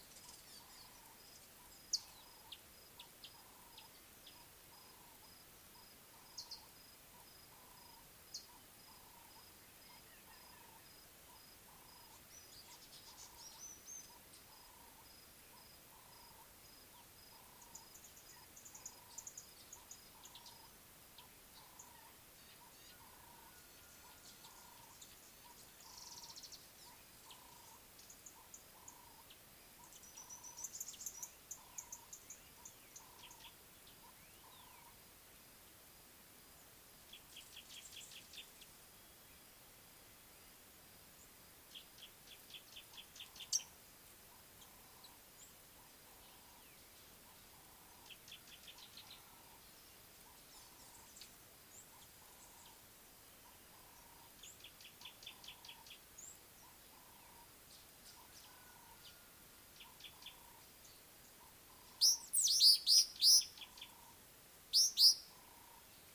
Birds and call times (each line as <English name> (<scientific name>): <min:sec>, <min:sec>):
Scarlet-chested Sunbird (Chalcomitra senegalensis): 0:03.3
Ring-necked Dove (Streptopelia capicola): 0:06.3, 0:57.1
African Gray Flycatcher (Bradornis microrhynchus): 0:13.2
Red-cheeked Cordonbleu (Uraeginthus bengalus): 0:18.9, 0:56.3
Gray-backed Camaroptera (Camaroptera brevicaudata): 0:22.9, 0:37.9, 0:42.7, 0:55.4, 1:03.6
Mariqua Sunbird (Cinnyris mariquensis): 0:26.2
Baglafecht Weaver (Ploceus baglafecht): 1:02.8